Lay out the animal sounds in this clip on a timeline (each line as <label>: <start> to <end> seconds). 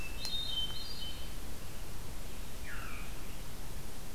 Hermit Thrush (Catharus guttatus): 0.0 to 1.5 seconds
Red-eyed Vireo (Vireo olivaceus): 0.0 to 4.1 seconds
Veery (Catharus fuscescens): 2.5 to 3.2 seconds